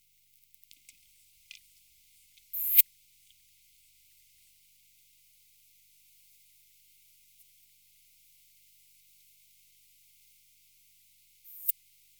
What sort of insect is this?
orthopteran